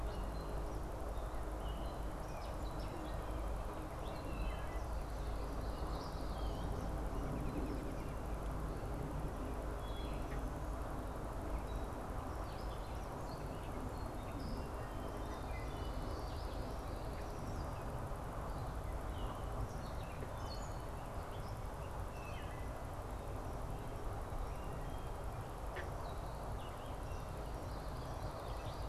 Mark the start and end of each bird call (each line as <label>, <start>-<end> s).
Gray Catbird (Dumetella carolinensis), 0.0-6.7 s
Wood Thrush (Hylocichla mustelina), 4.2-5.0 s
American Robin (Turdus migratorius), 7.1-8.4 s
Wood Thrush (Hylocichla mustelina), 9.8-10.6 s
Gray Catbird (Dumetella carolinensis), 11.5-28.9 s
Wood Thrush (Hylocichla mustelina), 15.4-16.0 s
Wood Thrush (Hylocichla mustelina), 22.2-22.8 s